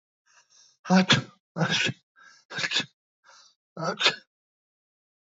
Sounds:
Sneeze